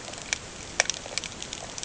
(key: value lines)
label: ambient
recorder: HydroMoth